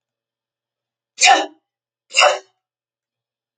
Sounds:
Sneeze